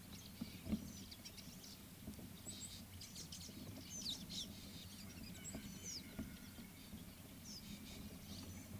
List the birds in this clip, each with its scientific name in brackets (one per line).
Fischer's Lovebird (Agapornis fischeri)